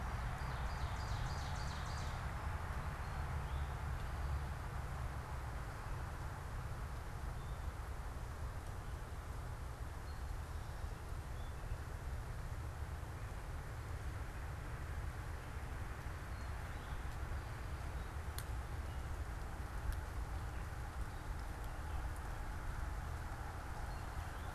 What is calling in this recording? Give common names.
Ovenbird, unidentified bird